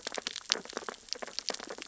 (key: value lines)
label: biophony, sea urchins (Echinidae)
recorder: SoundTrap 600 or HydroMoth